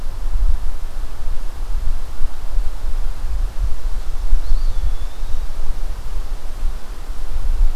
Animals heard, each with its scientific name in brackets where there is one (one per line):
Eastern Wood-Pewee (Contopus virens)